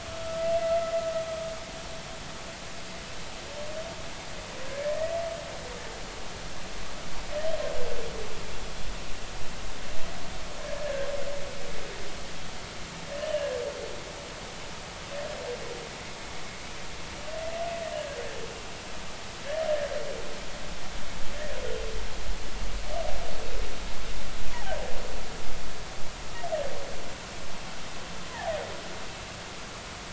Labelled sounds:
0.1	0.5	humpback whale, 1.3 to 1.4 kHz
4.7	4.9	humpback whale, 1.5 to 1.8 kHz
10.6	11.1	humpback whale, 1.5 to 1.8 kHz
13.2	13.6	humpback whale, 1.6 to 3.1 kHz
24.5	24.8	humpback whale, 0.80 to 1.0 kHz
28.3	28.6	humpback whale, 0.80 to 1.1 kHz

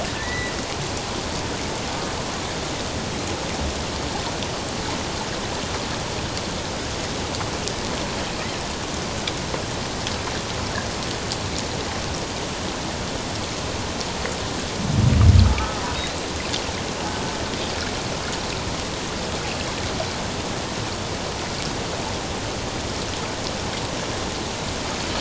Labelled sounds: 0.1	0.5	killer whale, offshore, 1.7 to 2.0 kHz
15.5	15.8	killer whale, offshore, 1.2 to 1.3 kHz

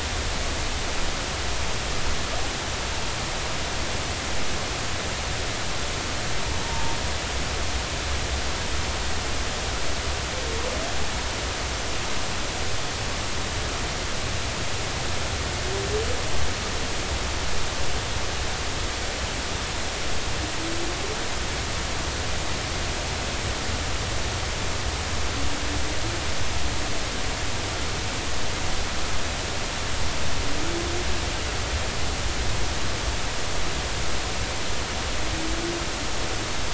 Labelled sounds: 6.6	7.0	humpback whale, 0.86 to 0.99 kHz

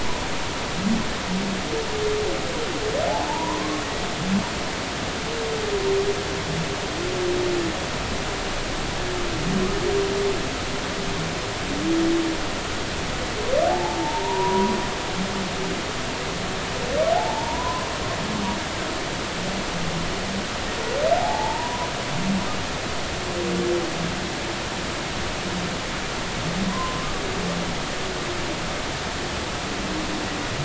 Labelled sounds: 3.2	3.6	humpback whale, 0.83 to 1.1 kHz
13.7	14.8	humpback whale, 0.80 to 1.0 kHz
17.2	17.9	humpback whale, 0.80 to 1.1 kHz
21.2	21.9	humpback whale, 0.80 to 1.1 kHz
26.7	27.0	humpback whale, 0.96 to 1.1 kHz

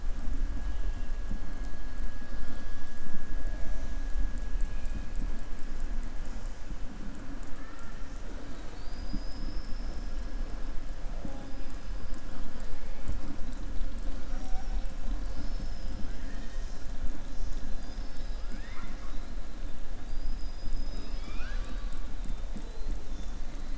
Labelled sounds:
0.6	1.1	killer whale, southern resident, 2.4 to 3.5 kHz
7.5	8.0	killer whale, southern resident, 0.92 to 2.2 kHz
8.4	10.1	killer whale, southern resident, 3.6 to 5.5 kHz
14.2	14.8	killer whale, southern resident, 4.4 to 6.6 kHz
15.2	16.0	killer whale, southern resident, 4.2 to 5.3 kHz
18.4	19.2	killer whale, southern resident, 0.94 to 4.2 kHz
20.0	22.0	killer whale, southern resident, 0.51 to 7.7 kHz

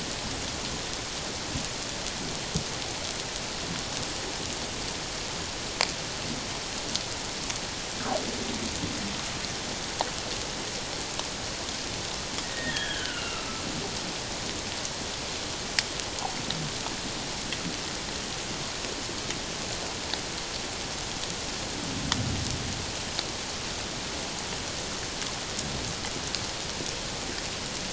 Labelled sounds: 12.4	13.5	humpback whale, 1.2 to 3.4 kHz

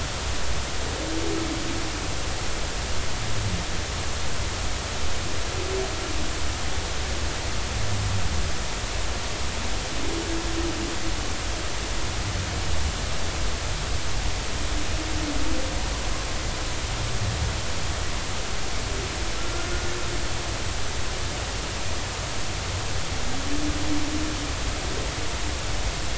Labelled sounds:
19.4	19.7	humpback whale, 1.3 to 1.5 kHz

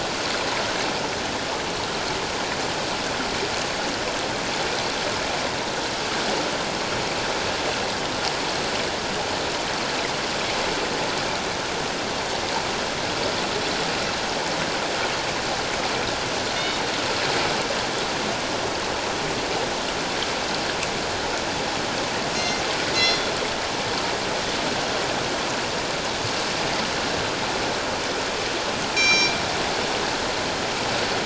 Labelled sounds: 16.6	16.8	killer whale, northern resident, G clan, 3.5 to 3.8 kHz
22.3	22.6	killer whale, northern resident, G clan, 2.0 to 5.7 kHz
22.9	23.3	killer whale, northern resident, G clan, 2.0 to 5.7 kHz
29.0	29.4	killer whale, northern resident, G clan, 2.3 to 7.2 kHz

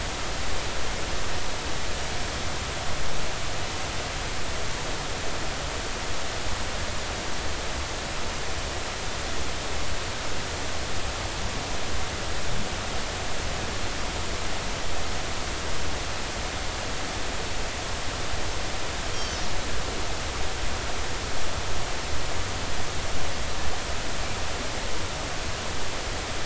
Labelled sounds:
19.1	19.4	Pacific white-sided dolphin, 3.0 to 6.5 kHz

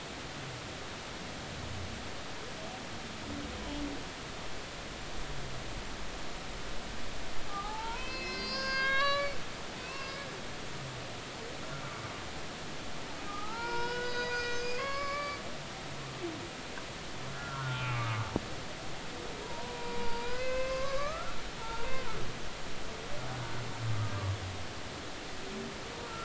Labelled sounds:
7.5	9.4	humpback whale, 0.80 to 6.6 kHz
9.8	10.2	humpback whale, 2.5 to 2.8 kHz
13.4	15.4	humpback whale, 0.80 to 6.6 kHz
17.3	18.3	humpback whale, 0.80 to 2.7 kHz
19.4	22.2	humpback whale, 0.83 to 4.8 kHz

